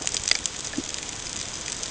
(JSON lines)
{"label": "ambient", "recorder": "HydroMoth"}